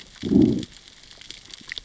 {"label": "biophony, growl", "recorder": "SoundTrap 600 or HydroMoth"}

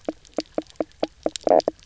{"label": "biophony, knock croak", "recorder": "SoundTrap 300"}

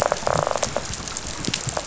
{"label": "biophony, rattle response", "recorder": "SoundTrap 500"}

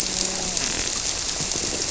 {"label": "biophony, grouper", "recorder": "SoundTrap 300"}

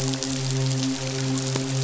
{"label": "biophony, midshipman", "recorder": "SoundTrap 500"}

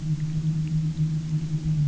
{"label": "anthrophony, boat engine", "recorder": "SoundTrap 300"}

